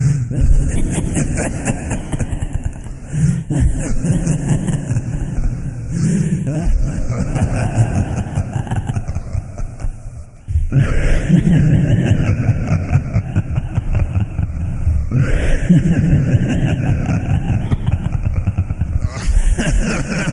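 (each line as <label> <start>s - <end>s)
Creepy, cruel, psychotic laughter with echoing effect. 0.0s - 20.3s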